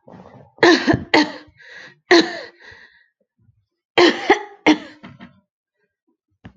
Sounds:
Cough